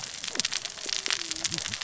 {"label": "biophony, cascading saw", "recorder": "SoundTrap 600 or HydroMoth"}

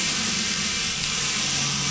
{"label": "anthrophony, boat engine", "recorder": "SoundTrap 500"}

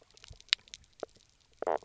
{"label": "biophony, knock croak", "recorder": "SoundTrap 300"}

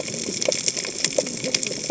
{"label": "biophony, cascading saw", "recorder": "HydroMoth"}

